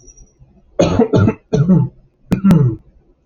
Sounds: Cough